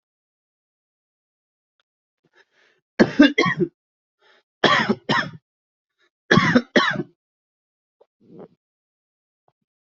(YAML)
expert_labels:
- quality: ok
  cough_type: wet
  dyspnea: false
  wheezing: false
  stridor: false
  choking: false
  congestion: false
  nothing: true
  diagnosis: lower respiratory tract infection
  severity: mild
age: 24
gender: male
respiratory_condition: false
fever_muscle_pain: false
status: symptomatic